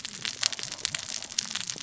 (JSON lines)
{"label": "biophony, cascading saw", "recorder": "SoundTrap 600 or HydroMoth"}